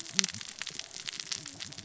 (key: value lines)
label: biophony, cascading saw
recorder: SoundTrap 600 or HydroMoth